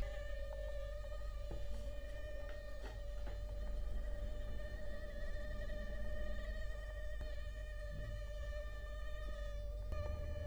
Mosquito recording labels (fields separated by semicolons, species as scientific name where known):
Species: Culex quinquefasciatus; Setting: cup